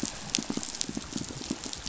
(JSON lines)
{"label": "biophony, pulse", "recorder": "SoundTrap 500"}